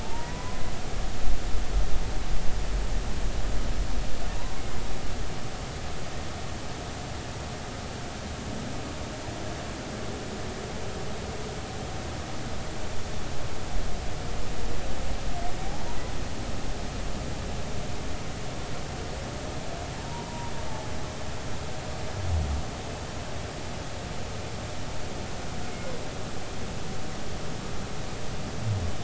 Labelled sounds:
0.0	0.7	humpback whale, 0.86 to 2.0 kHz
4.6	4.8	humpback whale, 2.0 to 2.2 kHz
20.1	20.5	humpback whale, 0.90 to 1.0 kHz

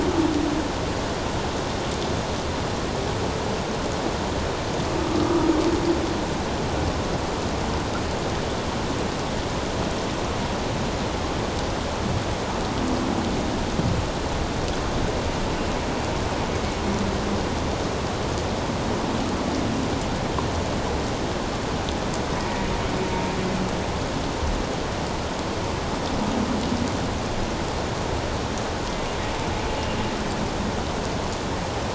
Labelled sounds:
5.1	5.4	humpback whale, 1.2 to 1.3 kHz

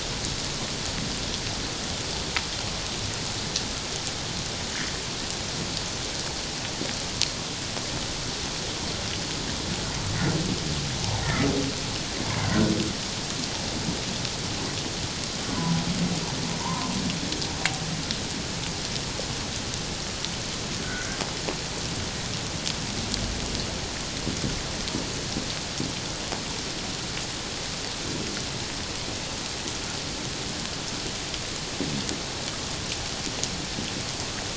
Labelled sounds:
12.3	12.7	humpback whale, 1.3 to 1.7 kHz
16.6	16.9	humpback whale, 0.88 to 1.1 kHz
20.8	21.2	humpback whale, 1.3 to 1.6 kHz

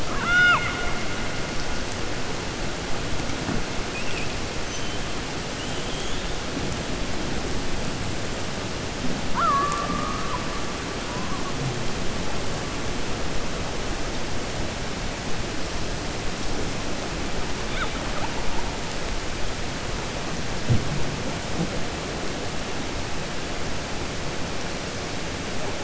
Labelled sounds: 0.0	1.0	killer whale, 0.70 to 5.7 kHz

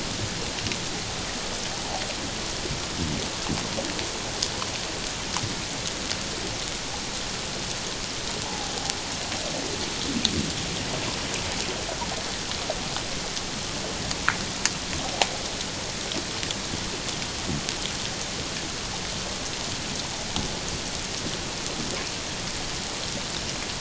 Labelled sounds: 8.4	8.7	water noise, 0.78 to 1.0 kHz

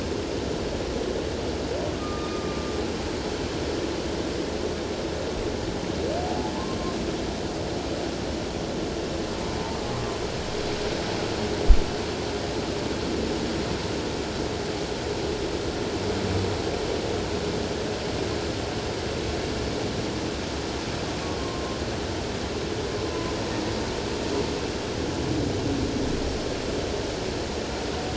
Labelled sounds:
2.0	2.7	humpback whale, 1.2 to 1.3 kHz
9.9	10.2	humpback whale, 1.0 to 1.2 kHz

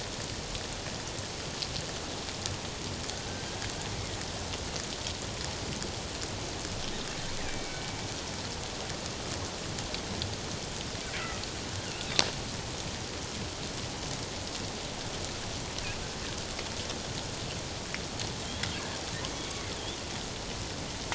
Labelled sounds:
7.4	7.9	killer whale, northern resident, G clan, 2.2 to 2.6 kHz

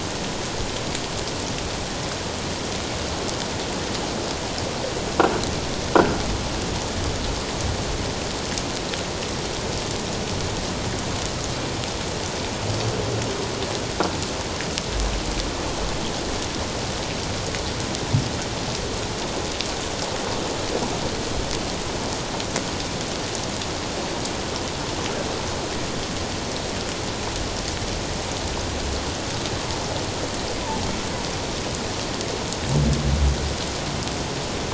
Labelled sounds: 30.6	30.8	humpback whale, 0.78 to 1.0 kHz

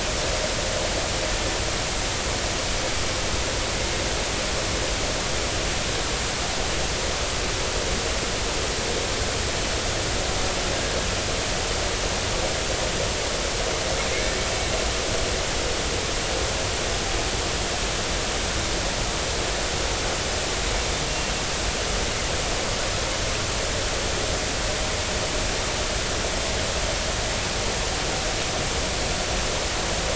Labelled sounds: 14.1	14.3	killer whale, 2.0 to 2.3 kHz
21.1	21.3	killer whale, 2.7 to 2.8 kHz

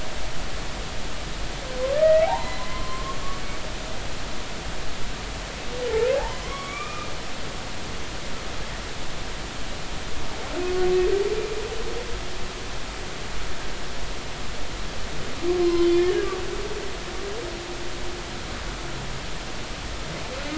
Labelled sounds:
1.9	3.2	humpback whale, 0.80 to 2.1 kHz
6.2	7.1	humpback whale, 0.80 to 2.5 kHz
15.6	16.1	humpback whale, 0.90 to 3.6 kHz

